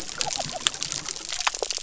{"label": "biophony", "recorder": "SoundTrap 300"}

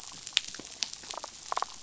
{"label": "biophony, damselfish", "recorder": "SoundTrap 500"}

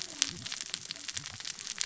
{"label": "biophony, cascading saw", "recorder": "SoundTrap 600 or HydroMoth"}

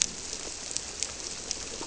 {"label": "biophony", "recorder": "SoundTrap 300"}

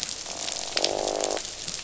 {"label": "biophony, croak", "recorder": "SoundTrap 500"}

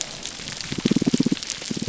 {"label": "biophony, pulse", "recorder": "SoundTrap 300"}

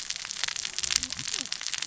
{"label": "biophony, cascading saw", "recorder": "SoundTrap 600 or HydroMoth"}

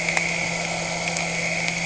{"label": "anthrophony, boat engine", "recorder": "HydroMoth"}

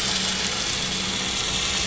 {"label": "anthrophony, boat engine", "recorder": "SoundTrap 500"}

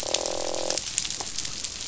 {"label": "biophony, croak", "recorder": "SoundTrap 500"}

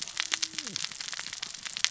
{"label": "biophony, cascading saw", "recorder": "SoundTrap 600 or HydroMoth"}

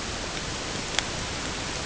{"label": "ambient", "recorder": "HydroMoth"}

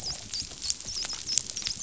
{"label": "biophony, dolphin", "recorder": "SoundTrap 500"}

